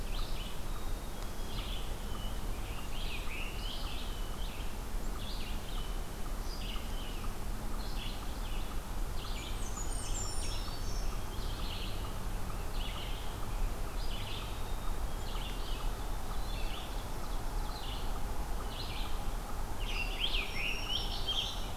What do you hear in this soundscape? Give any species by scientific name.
Vireo olivaceus, Poecile atricapillus, Piranga olivacea, Setophaga fusca, Setophaga virens, Contopus virens, Seiurus aurocapilla